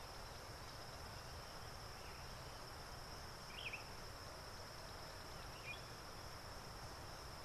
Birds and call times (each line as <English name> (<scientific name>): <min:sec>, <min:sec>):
Sombre Greenbul (Andropadus importunus): 0:03.7